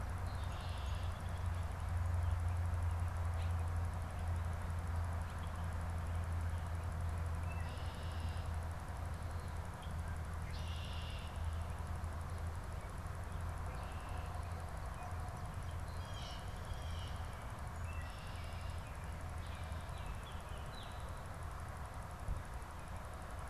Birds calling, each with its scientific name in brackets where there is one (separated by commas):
Blue Jay (Cyanocitta cristata), Baltimore Oriole (Icterus galbula), Red-winged Blackbird (Agelaius phoeniceus)